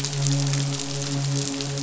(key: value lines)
label: biophony, midshipman
recorder: SoundTrap 500